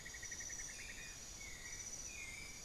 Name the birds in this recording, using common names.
Cinnamon-throated Woodcreeper, White-necked Thrush